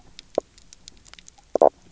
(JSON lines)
{"label": "biophony, knock croak", "recorder": "SoundTrap 300"}